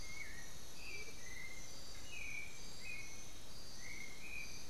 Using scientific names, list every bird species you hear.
Turdus ignobilis, Momotus momota